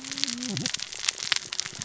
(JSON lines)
{"label": "biophony, cascading saw", "recorder": "SoundTrap 600 or HydroMoth"}